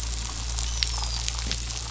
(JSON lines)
{"label": "biophony, dolphin", "recorder": "SoundTrap 500"}